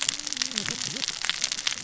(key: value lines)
label: biophony, cascading saw
recorder: SoundTrap 600 or HydroMoth